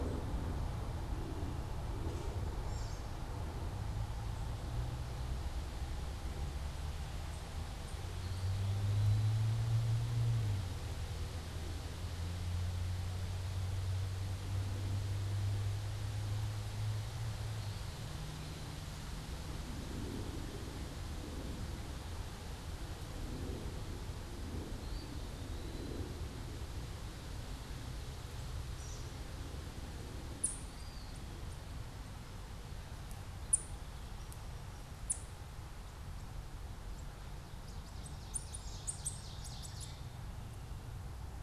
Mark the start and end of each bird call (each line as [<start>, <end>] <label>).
[2.50, 3.20] American Robin (Turdus migratorius)
[7.80, 9.60] Eastern Wood-Pewee (Contopus virens)
[24.70, 26.20] Eastern Wood-Pewee (Contopus virens)
[28.70, 29.20] American Robin (Turdus migratorius)
[30.30, 35.40] Ovenbird (Seiurus aurocapilla)
[37.20, 40.50] Ovenbird (Seiurus aurocapilla)